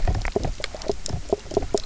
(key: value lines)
label: biophony, knock croak
recorder: SoundTrap 300